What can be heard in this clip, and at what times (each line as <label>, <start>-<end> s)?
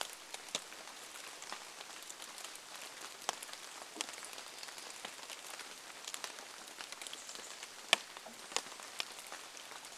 rain, 0-10 s
Chestnut-backed Chickadee call, 6-8 s